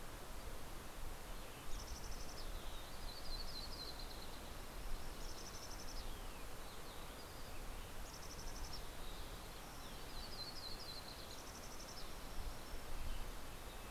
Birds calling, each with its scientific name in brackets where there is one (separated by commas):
Red-breasted Nuthatch (Sitta canadensis), Yellow-rumped Warbler (Setophaga coronata), Mountain Chickadee (Poecile gambeli), Green-tailed Towhee (Pipilo chlorurus)